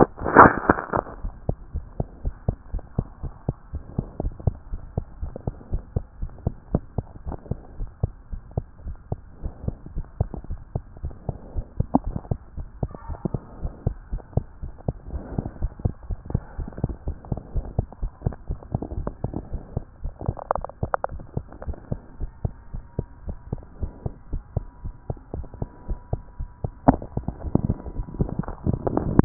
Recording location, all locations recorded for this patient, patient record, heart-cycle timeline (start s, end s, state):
tricuspid valve (TV)
aortic valve (AV)+pulmonary valve (PV)+tricuspid valve (TV)+mitral valve (MV)
#Age: Child
#Sex: Male
#Height: 92.0 cm
#Weight: 14.9 kg
#Pregnancy status: False
#Murmur: Absent
#Murmur locations: nan
#Most audible location: nan
#Systolic murmur timing: nan
#Systolic murmur shape: nan
#Systolic murmur grading: nan
#Systolic murmur pitch: nan
#Systolic murmur quality: nan
#Diastolic murmur timing: nan
#Diastolic murmur shape: nan
#Diastolic murmur grading: nan
#Diastolic murmur pitch: nan
#Diastolic murmur quality: nan
#Outcome: Normal
#Campaign: 2014 screening campaign
0.00	1.74	unannotated
1.74	1.84	S1
1.84	1.98	systole
1.98	2.06	S2
2.06	2.24	diastole
2.24	2.34	S1
2.34	2.46	systole
2.46	2.56	S2
2.56	2.72	diastole
2.72	2.82	S1
2.82	2.96	systole
2.96	3.06	S2
3.06	3.24	diastole
3.24	3.32	S1
3.32	3.46	systole
3.46	3.56	S2
3.56	3.74	diastole
3.74	3.82	S1
3.82	3.96	systole
3.96	4.06	S2
4.06	4.25	diastole
4.25	4.34	S1
4.34	4.46	systole
4.46	4.56	S2
4.56	4.72	diastole
4.72	4.82	S1
4.82	4.96	systole
4.96	5.04	S2
5.04	5.20	diastole
5.20	5.32	S1
5.32	5.46	systole
5.46	5.54	S2
5.54	5.72	diastole
5.72	5.82	S1
5.82	5.94	systole
5.94	6.04	S2
6.04	6.20	diastole
6.20	6.30	S1
6.30	6.44	systole
6.44	6.54	S2
6.54	6.72	diastole
6.72	6.82	S1
6.82	6.96	systole
6.96	7.06	S2
7.06	7.26	diastole
7.26	7.38	S1
7.38	7.50	systole
7.50	7.58	S2
7.58	7.78	diastole
7.78	7.90	S1
7.90	8.02	systole
8.02	8.12	S2
8.12	8.32	diastole
8.32	8.42	S1
8.42	8.56	systole
8.56	8.64	S2
8.64	8.86	diastole
8.86	8.96	S1
8.96	9.10	systole
9.10	9.20	S2
9.20	9.42	diastole
9.42	9.54	S1
9.54	9.66	systole
9.66	9.74	S2
9.74	9.94	diastole
9.94	10.06	S1
10.06	10.18	systole
10.18	10.28	S2
10.28	10.50	diastole
10.50	10.60	S1
10.60	10.74	systole
10.74	10.82	S2
10.82	11.02	diastole
11.02	11.14	S1
11.14	11.28	systole
11.28	11.36	S2
11.36	11.54	diastole
11.54	11.66	S1
11.66	11.78	systole
11.78	11.88	S2
11.88	12.06	diastole
12.06	12.18	S1
12.18	12.30	systole
12.30	12.38	S2
12.38	12.56	diastole
12.56	12.68	S1
12.68	12.82	systole
12.82	12.90	S2
12.90	13.08	diastole
13.08	13.18	S1
13.18	13.32	systole
13.32	13.40	S2
13.40	13.62	diastole
13.62	13.72	S1
13.72	13.86	systole
13.86	13.96	S2
13.96	14.12	diastole
14.12	14.22	S1
14.22	14.36	systole
14.36	14.46	S2
14.46	14.62	diastole
14.62	14.72	S1
14.72	14.86	systole
14.86	14.94	S2
14.94	15.12	diastole
15.12	15.24	S1
15.24	15.36	systole
15.36	15.46	S2
15.46	15.60	diastole
15.60	15.72	S1
15.72	15.84	systole
15.84	15.94	S2
15.94	16.08	diastole
16.08	16.18	S1
16.18	16.32	systole
16.32	16.42	S2
16.42	16.58	diastole
16.58	16.68	S1
16.68	16.82	systole
16.82	16.94	S2
16.94	17.06	diastole
17.06	17.16	S1
17.16	17.30	systole
17.30	17.40	S2
17.40	17.54	diastole
17.54	17.66	S1
17.66	17.76	systole
17.76	17.88	S2
17.88	18.02	diastole
18.02	18.12	S1
18.12	18.24	systole
18.24	18.36	S2
18.36	18.50	diastole
18.50	29.25	unannotated